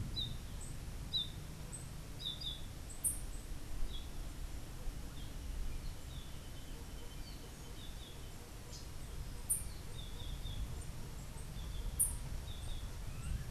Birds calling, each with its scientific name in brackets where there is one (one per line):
unidentified bird
Clay-colored Thrush (Turdus grayi)
Yellow-throated Euphonia (Euphonia hirundinacea)